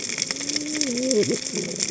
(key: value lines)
label: biophony, cascading saw
recorder: HydroMoth